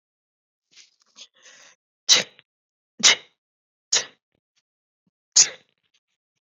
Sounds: Sniff